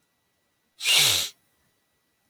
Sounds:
Sniff